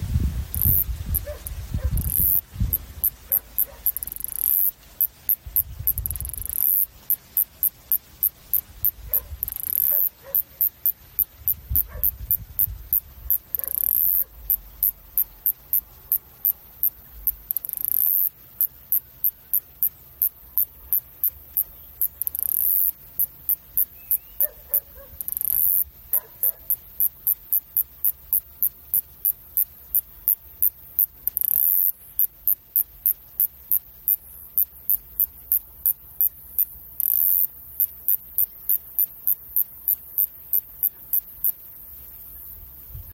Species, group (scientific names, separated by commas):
Kikihia muta, Cicadidae